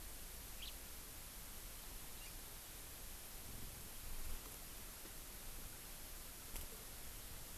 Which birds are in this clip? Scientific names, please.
Haemorhous mexicanus, Chlorodrepanis virens